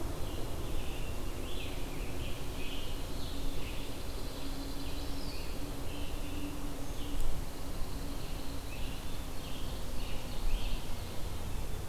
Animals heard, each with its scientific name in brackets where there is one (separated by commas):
Scarlet Tanager (Piranga olivacea), Eastern Wood-Pewee (Contopus virens), Ovenbird (Seiurus aurocapilla), Pine Warbler (Setophaga pinus)